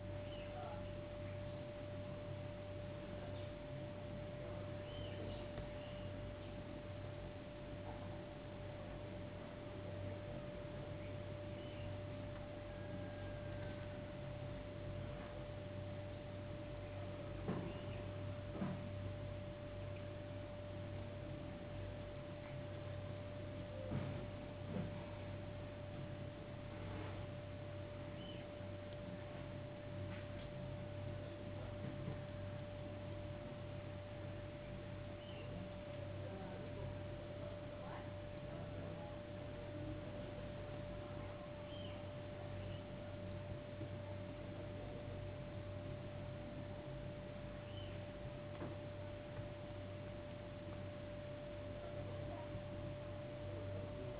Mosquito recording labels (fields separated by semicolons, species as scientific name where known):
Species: no mosquito; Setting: insect culture